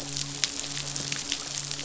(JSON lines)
{"label": "biophony, midshipman", "recorder": "SoundTrap 500"}